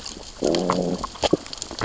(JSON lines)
{"label": "biophony, growl", "recorder": "SoundTrap 600 or HydroMoth"}